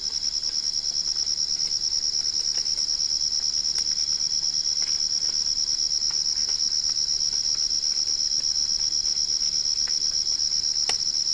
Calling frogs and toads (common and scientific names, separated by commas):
none